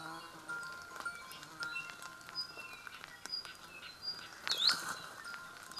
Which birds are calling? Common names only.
Hawaii Akepa